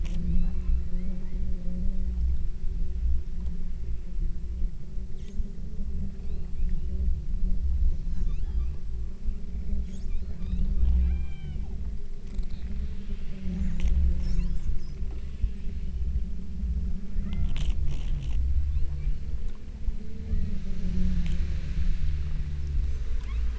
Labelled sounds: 0.3	1.7	killer whale, southern Alaska resident, 1.6 to 4.4 kHz
6.2	7.2	killer whale, southern Alaska resident, 2.1 to 4.5 kHz
8.1	9.0	killer whale, southern Alaska resident, 0.62 to 7.4 kHz
10.1	11.8	killer whale, southern Alaska resident, 0.57 to 5.2 kHz
14.4	16.2	killer whale, southern Alaska resident, 1.0 to 5.7 kHz
17.3	17.8	killer whale, southern Alaska resident, 0.52 to 2.3 kHz
18.8	19.5	killer whale, southern Alaska resident, 2.1 to 4.5 kHz
20.3	20.9	killer whale, southern Alaska resident, 0.96 to 2.1 kHz
23.2	23.5	killer whale, southern Alaska resident, 0.84 to 4.7 kHz

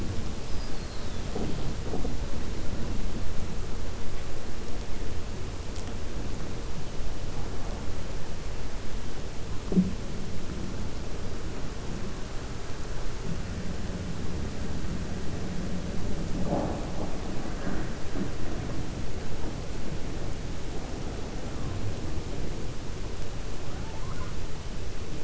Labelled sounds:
23.7	24.3	killer whale, 0.75 to 2.2 kHz

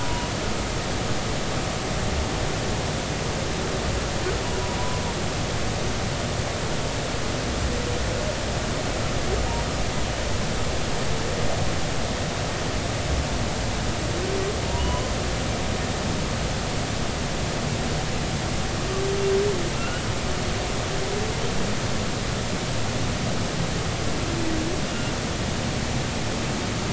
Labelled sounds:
0.0	0.3	humpback whale, 0.93 to 1.0 kHz
14.8	15.1	humpback whale, 0.96 to 1.1 kHz
19.8	20.0	humpback whale, 1.3 to 3.0 kHz
24.9	25.1	humpback whale, 2.8 to 2.9 kHz

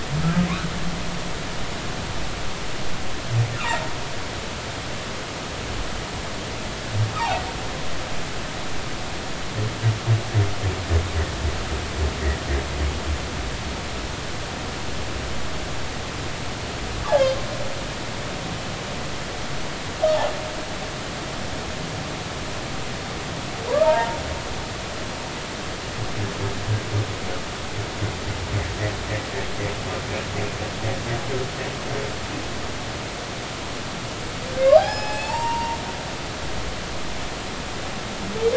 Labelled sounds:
23.7	24.2	humpback whale, 0.86 to 1.4 kHz
34.8	35.8	humpback whale, 0.80 to 5.6 kHz

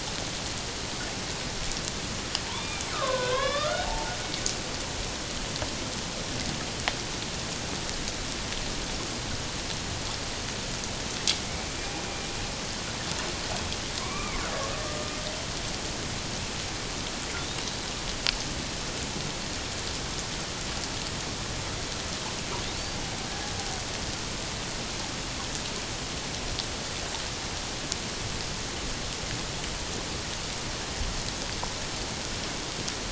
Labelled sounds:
2.5	4.1	killer whale, Bigg's (transient), 0.78 to 3.8 kHz
11.4	12.0	killer whale, Bigg's (transient), 2.1 to 2.5 kHz
14.0	14.4	killer whale, Bigg's (transient), 0.94 to 2.5 kHz

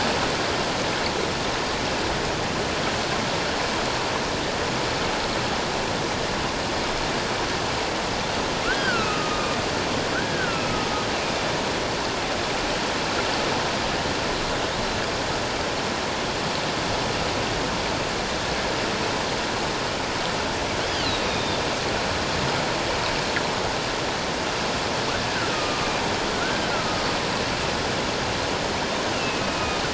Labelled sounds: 8.6	9.6	killer whale, northern resident, A clan, AA subclan, A01 pod, 1.2 to 3.0 kHz
10.1	11.5	killer whale, northern resident, A clan, AA subclan, A01 pod, 1.3 to 3.7 kHz
20.9	21.6	killer whale, northern resident, A clan, AA subclan, A01 pod, 2.7 to 3.8 kHz
25.3	27.0	killer whale, northern resident, A clan, AA subclan, A01 pod, 1.2 to 1.7 kHz
29.1	29.8	killer whale, northern resident, A clan, AA subclan, A01 pod, 2.4 to 2.9 kHz

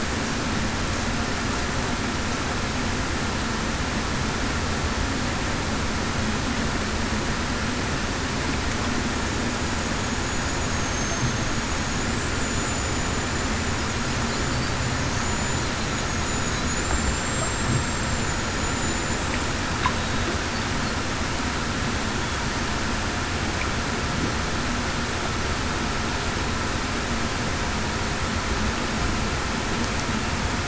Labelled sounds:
10.7	11.5	killer whale, Bigg's (transient), 6.3 to 6.7 kHz
12.4	12.9	killer whale, Bigg's (transient), 6.9 to 7.1 kHz
15.2	15.7	killer whale, Bigg's (transient), 6.9 to 7.1 kHz
16.8	18.0	killer whale, Bigg's (transient), 7.2 to 7.5 kHz
18.7	19.1	killer whale, Bigg's (transient), 7.0 to 7.2 kHz

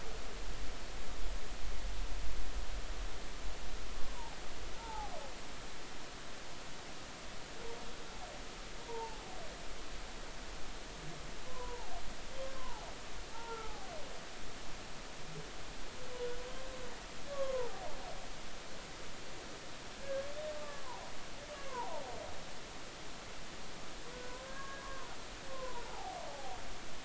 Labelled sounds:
3.9	5.2	humpback whale, 0.80 to 1.2 kHz
8.8	9.2	humpback whale, 0.80 to 0.99 kHz
11.5	11.9	humpback whale, 0.80 to 1.1 kHz
12.5	13.9	humpback whale, 0.80 to 1.4 kHz
17.3	17.9	humpback whale, 0.80 to 1.2 kHz
19.9	20.8	humpback whale, 1.1 to 1.7 kHz
21.6	22.0	humpback whale, 0.80 to 1.2 kHz
24.1	25.1	humpback whale, 0.93 to 1.7 kHz
25.5	26.6	humpback whale, 0.80 to 1.1 kHz

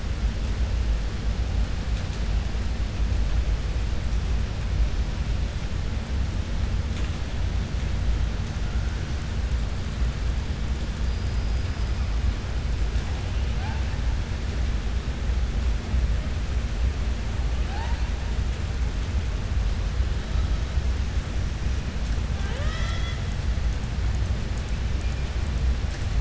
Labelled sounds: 11.0	11.9	killer whale, southern resident, 4.7 to 5.1 kHz

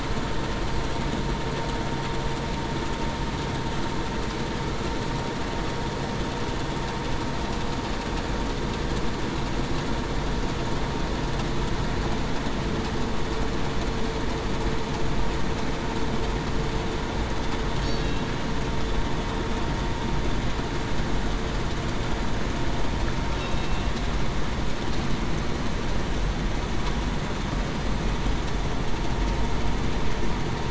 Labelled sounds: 17.8	18.2	killer whale, Bigg's (transient), 3.8 to 3.9 kHz
23.5	23.9	killer whale, Bigg's (transient), 2.6 to 2.8 kHz

